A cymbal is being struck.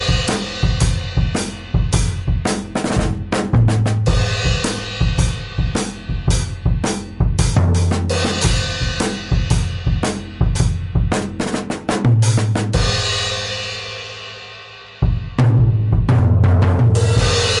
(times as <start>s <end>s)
13.9s 14.9s